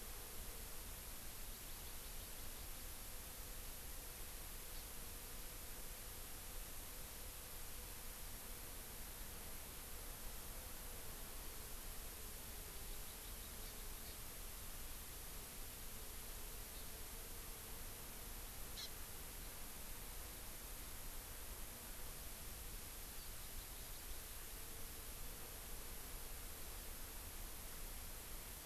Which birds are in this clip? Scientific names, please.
Chlorodrepanis virens